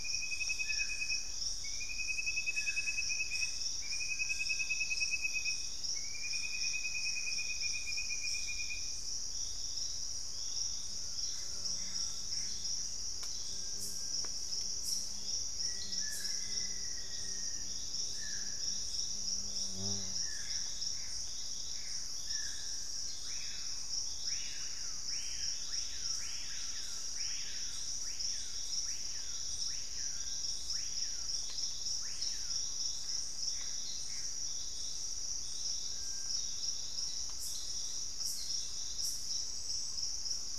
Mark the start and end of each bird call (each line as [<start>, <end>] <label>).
[0.00, 7.79] Purple-throated Fruitcrow (Querula purpurata)
[2.69, 8.19] Gray Antbird (Cercomacra cinerascens)
[6.08, 12.38] Collared Trogon (Trogon collaris)
[10.98, 12.69] Gray Antbird (Cercomacra cinerascens)
[15.48, 17.89] Black-faced Antthrush (Formicarius analis)
[19.79, 22.18] Gray Antbird (Cercomacra cinerascens)
[22.09, 25.48] Purple-throated Fruitcrow (Querula purpurata)
[22.89, 32.98] Screaming Piha (Lipaugus vociferans)
[30.68, 40.48] Purple-throated Fruitcrow (Querula purpurata)
[32.88, 34.69] Gray Antbird (Cercomacra cinerascens)
[33.69, 34.19] unidentified bird